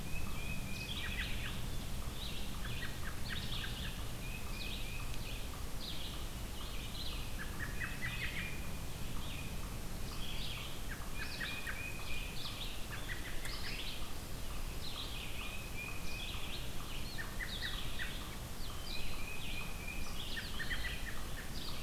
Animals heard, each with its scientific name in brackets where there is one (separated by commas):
Red-eyed Vireo (Vireo olivaceus), Tufted Titmouse (Baeolophus bicolor), American Robin (Turdus migratorius)